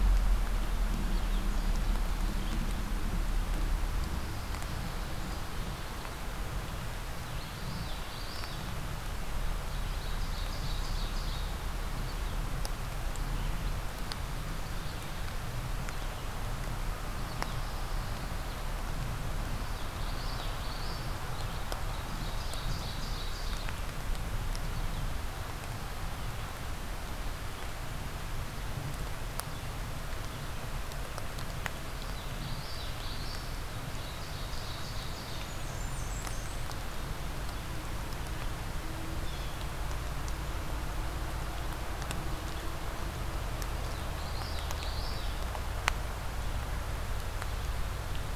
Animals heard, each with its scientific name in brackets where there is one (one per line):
Blackburnian Warbler (Setophaga fusca)
Common Yellowthroat (Geothlypis trichas)
Blue Jay (Cyanocitta cristata)
Ovenbird (Seiurus aurocapilla)
American Goldfinch (Spinus tristis)